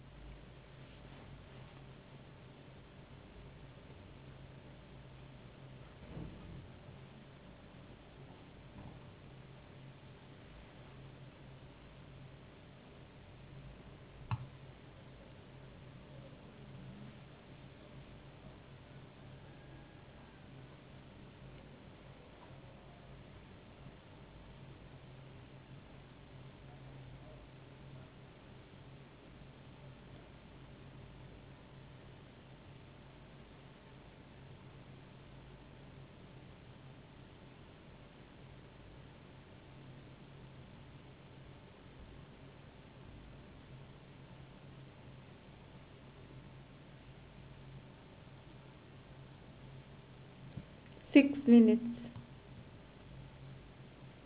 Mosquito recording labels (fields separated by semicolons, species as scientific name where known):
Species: no mosquito; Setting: insect culture